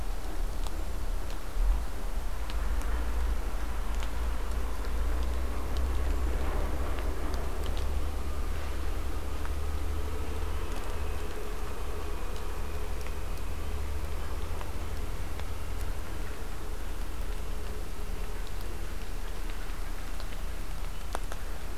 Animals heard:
forest ambience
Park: Acadia National Park